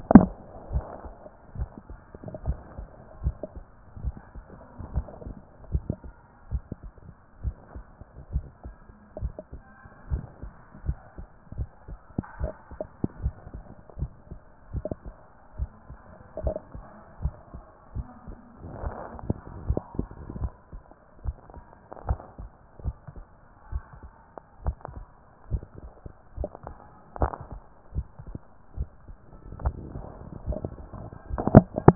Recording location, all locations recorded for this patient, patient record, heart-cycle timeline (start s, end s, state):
tricuspid valve (TV)
pulmonary valve (PV)+tricuspid valve (TV)+mitral valve (MV)
#Age: nan
#Sex: Female
#Height: nan
#Weight: nan
#Pregnancy status: True
#Murmur: Absent
#Murmur locations: nan
#Most audible location: nan
#Systolic murmur timing: nan
#Systolic murmur shape: nan
#Systolic murmur grading: nan
#Systolic murmur pitch: nan
#Systolic murmur quality: nan
#Diastolic murmur timing: nan
#Diastolic murmur shape: nan
#Diastolic murmur grading: nan
#Diastolic murmur pitch: nan
#Diastolic murmur quality: nan
#Outcome: Abnormal
#Campaign: 2014 screening campaign
0.00	4.02	unannotated
4.02	4.14	S1
4.14	4.34	systole
4.34	4.44	S2
4.44	4.94	diastole
4.94	5.06	S1
5.06	5.26	systole
5.26	5.34	S2
5.34	5.72	diastole
5.72	5.84	S1
5.84	6.04	systole
6.04	6.14	S2
6.14	6.50	diastole
6.50	6.62	S1
6.62	6.82	systole
6.82	6.92	S2
6.92	7.44	diastole
7.44	7.56	S1
7.56	7.74	systole
7.74	7.84	S2
7.84	8.32	diastole
8.32	8.44	S1
8.44	8.64	systole
8.64	8.74	S2
8.74	9.20	diastole
9.20	9.32	S1
9.32	9.52	systole
9.52	9.62	S2
9.62	10.10	diastole
10.10	10.24	S1
10.24	10.42	systole
10.42	10.52	S2
10.52	10.86	diastole
10.86	10.98	S1
10.98	11.18	systole
11.18	11.26	S2
11.26	11.56	diastole
11.56	11.68	S1
11.68	11.88	systole
11.88	11.98	S2
11.98	12.40	diastole
12.40	12.52	S1
12.52	12.72	systole
12.72	12.80	S2
12.80	13.22	diastole
13.22	13.34	S1
13.34	13.54	systole
13.54	13.64	S2
13.64	13.98	diastole
13.98	14.10	S1
14.10	14.30	systole
14.30	14.40	S2
14.40	14.72	diastole
14.72	14.84	S1
14.84	15.04	systole
15.04	15.14	S2
15.14	15.58	diastole
15.58	15.70	S1
15.70	15.88	systole
15.88	15.98	S2
15.98	16.42	diastole
16.42	16.56	S1
16.56	16.74	systole
16.74	16.84	S2
16.84	17.22	diastole
17.22	17.34	S1
17.34	17.52	systole
17.52	17.64	S2
17.64	17.96	diastole
17.96	18.06	S1
18.06	18.26	systole
18.26	18.36	S2
18.36	18.82	diastole
18.82	18.94	S1
18.94	19.16	systole
19.16	19.20	S2
19.20	19.66	diastole
19.66	19.80	S1
19.80	19.98	systole
19.98	20.08	S2
20.08	20.40	diastole
20.40	20.52	S1
20.52	20.72	systole
20.72	20.82	S2
20.82	21.24	diastole
21.24	21.36	S1
21.36	21.54	systole
21.54	21.64	S2
21.64	22.06	diastole
22.06	22.20	S1
22.20	22.40	systole
22.40	22.50	S2
22.50	22.84	diastole
22.84	22.96	S1
22.96	23.14	systole
23.14	23.24	S2
23.24	23.72	diastole
23.72	23.84	S1
23.84	24.02	systole
24.02	24.12	S2
24.12	24.64	diastole
24.64	24.76	S1
24.76	24.94	systole
24.94	25.04	S2
25.04	25.50	diastole
25.50	25.62	S1
25.62	25.82	systole
25.82	25.92	S2
25.92	26.38	diastole
26.38	26.50	S1
26.50	26.66	systole
26.66	26.76	S2
26.76	27.20	diastole
27.20	27.32	S1
27.32	27.52	systole
27.52	27.60	S2
27.60	27.96	diastole
27.96	28.06	S1
28.06	28.26	systole
28.26	28.36	S2
28.36	28.78	diastole
28.78	28.88	S1
28.88	29.06	systole
29.06	29.16	S2
29.16	29.62	diastole
29.62	31.95	unannotated